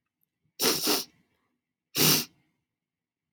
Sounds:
Sniff